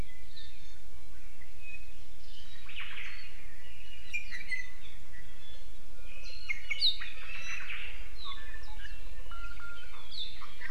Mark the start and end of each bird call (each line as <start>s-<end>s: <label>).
0.3s-0.9s: Iiwi (Drepanis coccinea)
2.7s-3.3s: Omao (Myadestes obscurus)
4.1s-4.9s: Iiwi (Drepanis coccinea)
5.2s-6.0s: Iiwi (Drepanis coccinea)
6.5s-7.6s: Iiwi (Drepanis coccinea)
7.2s-8.2s: Omao (Myadestes obscurus)
8.3s-10.0s: Iiwi (Drepanis coccinea)